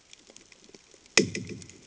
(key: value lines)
label: anthrophony, bomb
recorder: HydroMoth